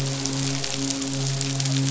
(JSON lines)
{"label": "biophony, midshipman", "recorder": "SoundTrap 500"}